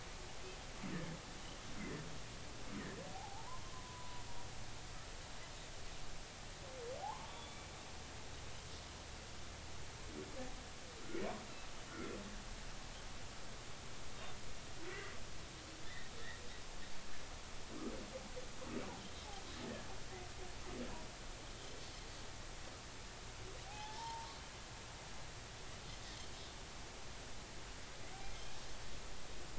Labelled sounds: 3.1	4.2	humpback whale, 0.80 to 1.1 kHz
7.0	7.7	humpback whale, 0.80 to 3.5 kHz
11.9	12.2	humpback whale, 1.3 to 1.5 kHz
14.8	15.1	humpback whale, 1.9 to 2.1 kHz
15.9	16.1	humpback whale, 1.7 to 2.0 kHz
23.7	24.3	humpback whale, 0.80 to 1.9 kHz

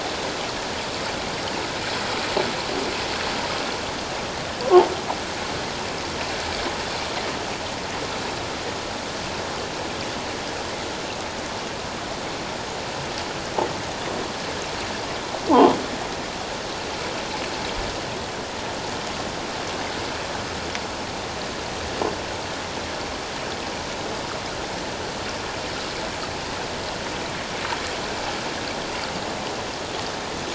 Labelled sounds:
15.5	15.8	croaking sound likely from a nearby submerged object, 0.78 to 1.1 kHz

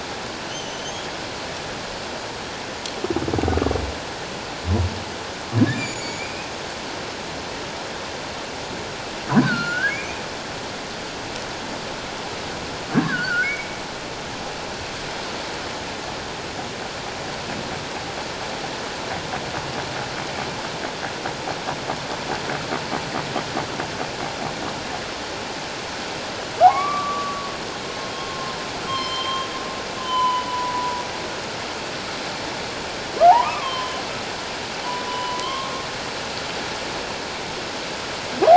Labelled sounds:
0.5	1.0	humpback whale, 2.9 to 6.6 kHz
5.7	6.5	humpback whale, 2.2 to 7.3 kHz
9.4	10.2	humpback whale, 1.3 to 2.6 kHz
12.9	13.7	humpback whale, 1.3 to 2.3 kHz
26.6	27.5	humpback whale, 0.78 to 2.4 kHz
28.3	28.5	humpback whale, 1.0 to 1.1 kHz
28.9	31.0	humpback whale, 0.91 to 4.3 kHz
33.2	34.0	humpback whale, 0.78 to 3.3 kHz
35.0	35.7	humpback whale, 0.94 to 3.0 kHz

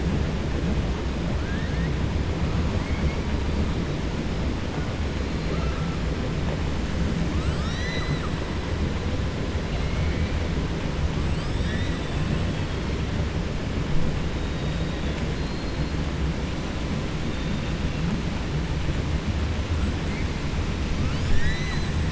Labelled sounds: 2.7	3.2	killer whale, 1.9 to 3.2 kHz
7.3	8.4	killer whale, 1.2 to 8.0 kHz
11.2	12.3	killer whale, 1.7 to 6.0 kHz
21.0	22.0	killer whale, 1.1 to 8.0 kHz

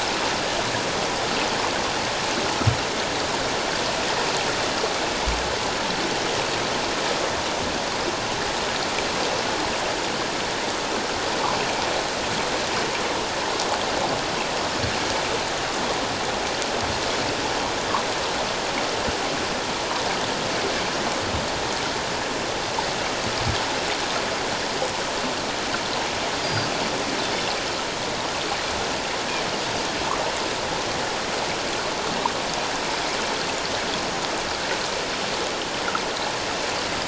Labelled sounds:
26.4	27.5	Pacific white-sided dolphin, 3.4 to 4.9 kHz

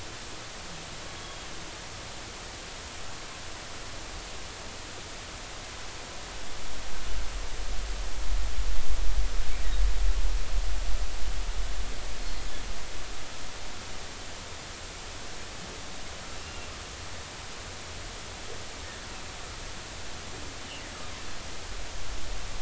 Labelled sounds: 1.1	1.5	humpback whale, 3.2 to 3.4 kHz
16.4	16.7	humpback whale, 2.6 to 2.8 kHz

